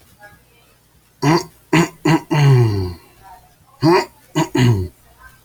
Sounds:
Throat clearing